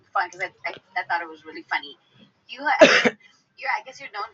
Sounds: Sniff